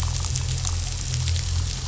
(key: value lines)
label: anthrophony, boat engine
recorder: SoundTrap 500